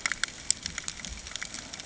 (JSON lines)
{"label": "ambient", "recorder": "HydroMoth"}